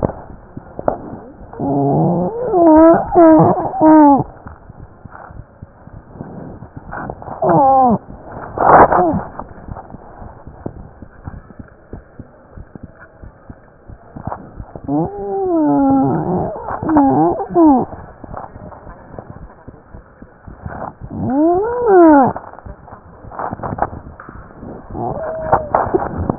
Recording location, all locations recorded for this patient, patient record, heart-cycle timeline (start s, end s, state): mitral valve (MV)
pulmonary valve (PV)+tricuspid valve (TV)+mitral valve (MV)
#Age: Child
#Sex: Female
#Height: 109.0 cm
#Weight: 22.5 kg
#Pregnancy status: False
#Murmur: Unknown
#Murmur locations: nan
#Most audible location: nan
#Systolic murmur timing: nan
#Systolic murmur shape: nan
#Systolic murmur grading: nan
#Systolic murmur pitch: nan
#Systolic murmur quality: nan
#Diastolic murmur timing: nan
#Diastolic murmur shape: nan
#Diastolic murmur grading: nan
#Diastolic murmur pitch: nan
#Diastolic murmur quality: nan
#Outcome: Abnormal
#Campaign: 2015 screening campaign
0.00	9.73	unannotated
9.73	9.81	S1
9.81	9.92	systole
9.92	9.98	S2
9.98	10.20	diastole
10.20	10.31	S1
10.31	10.45	systole
10.45	10.52	S2
10.52	10.76	diastole
10.76	10.85	S1
10.85	11.00	systole
11.00	11.07	S2
11.07	11.31	diastole
11.31	11.40	S1
11.40	11.57	systole
11.57	11.64	S2
11.64	11.90	diastole
11.90	12.01	S1
12.01	12.16	systole
12.16	12.24	S2
12.24	12.56	diastole
12.56	12.64	S1
12.64	12.82	systole
12.82	12.87	S2
12.87	13.21	diastole
13.21	13.29	S1
13.29	13.48	systole
13.48	13.54	S2
13.54	13.88	diastole
13.88	13.96	S1
13.96	26.38	unannotated